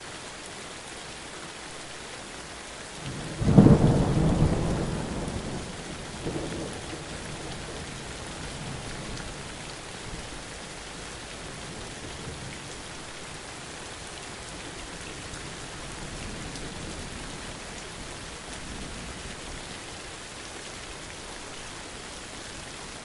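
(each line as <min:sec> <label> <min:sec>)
0:00.0 A steady, continuous sound of rain falling with a soft, rhythmic patter. 0:03.4
0:03.4 A short, sharp crack of thunder. 0:04.8
0:04.8 A steady, continuous sound of rain falling with a soft, rhythmic patter. 0:23.0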